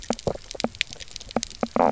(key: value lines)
label: biophony, knock croak
recorder: SoundTrap 300